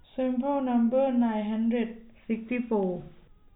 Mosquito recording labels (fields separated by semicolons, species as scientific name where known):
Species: no mosquito; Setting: cup